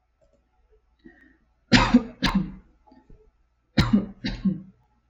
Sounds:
Cough